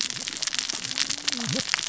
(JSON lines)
{"label": "biophony, cascading saw", "recorder": "SoundTrap 600 or HydroMoth"}